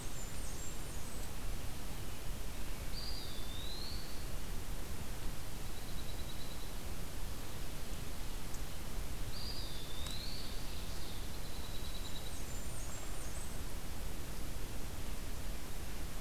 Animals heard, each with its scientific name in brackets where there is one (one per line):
Eastern Wood-Pewee (Contopus virens)
Blackburnian Warbler (Setophaga fusca)
Dark-eyed Junco (Junco hyemalis)